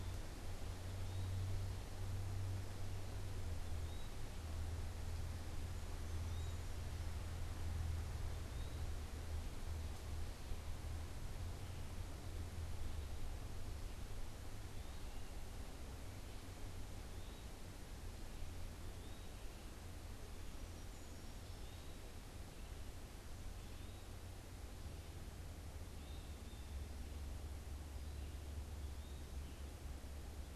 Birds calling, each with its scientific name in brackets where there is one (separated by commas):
Eastern Wood-Pewee (Contopus virens), Blue Jay (Cyanocitta cristata), Brown Creeper (Certhia americana)